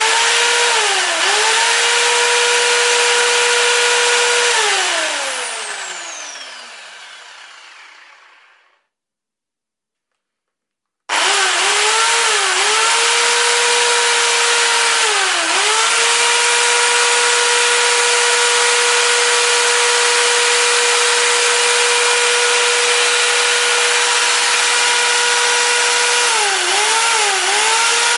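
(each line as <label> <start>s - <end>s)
A very loud drill revving. 0.0s - 8.7s
A very loud drill revving. 11.1s - 28.2s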